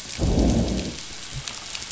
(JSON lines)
{"label": "biophony, growl", "recorder": "SoundTrap 500"}